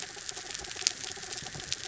{"label": "anthrophony, mechanical", "recorder": "SoundTrap 300"}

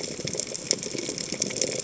{"label": "biophony, chatter", "recorder": "HydroMoth"}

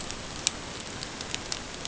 {"label": "ambient", "recorder": "HydroMoth"}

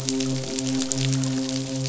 {"label": "biophony, midshipman", "recorder": "SoundTrap 500"}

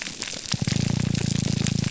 {"label": "biophony, grouper groan", "recorder": "SoundTrap 300"}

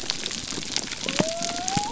{"label": "biophony", "recorder": "SoundTrap 300"}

